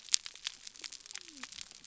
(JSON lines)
{"label": "biophony", "recorder": "SoundTrap 300"}